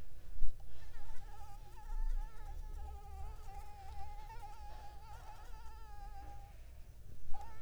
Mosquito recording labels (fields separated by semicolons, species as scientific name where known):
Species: Anopheles arabiensis; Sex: female; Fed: unfed; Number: one; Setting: cup